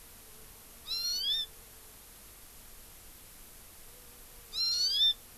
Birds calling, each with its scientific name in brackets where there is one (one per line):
Hawaii Amakihi (Chlorodrepanis virens)